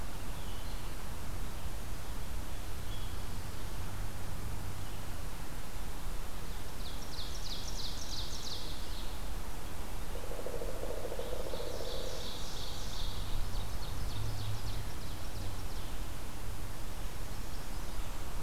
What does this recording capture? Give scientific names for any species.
Vireo olivaceus, Seiurus aurocapilla, Dryocopus pileatus